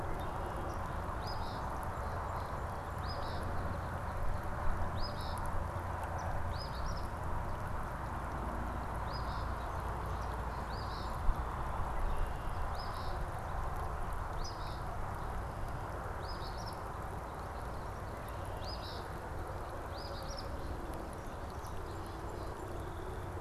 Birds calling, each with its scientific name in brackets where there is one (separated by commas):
Song Sparrow (Melospiza melodia), Eastern Phoebe (Sayornis phoebe), Red-winged Blackbird (Agelaius phoeniceus)